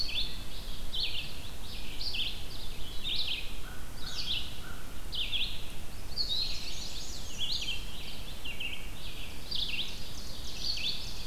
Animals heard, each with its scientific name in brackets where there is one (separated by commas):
Ovenbird (Seiurus aurocapilla), Black-and-white Warbler (Mniotilta varia), American Crow (Corvus brachyrhynchos), Chestnut-sided Warbler (Setophaga pensylvanica), Red-eyed Vireo (Vireo olivaceus)